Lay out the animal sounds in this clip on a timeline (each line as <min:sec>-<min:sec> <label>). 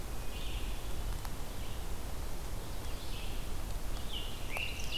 0:00.0-0:05.0 Red-eyed Vireo (Vireo olivaceus)
0:03.7-0:05.0 Scarlet Tanager (Piranga olivacea)